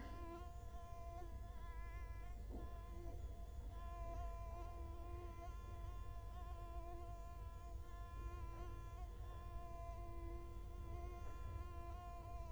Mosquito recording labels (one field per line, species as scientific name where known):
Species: Culex quinquefasciatus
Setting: cup